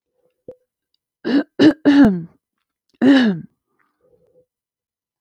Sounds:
Throat clearing